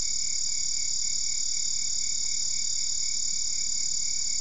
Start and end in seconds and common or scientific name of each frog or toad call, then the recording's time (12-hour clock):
none
3:00am